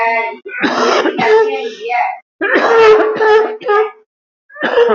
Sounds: Cough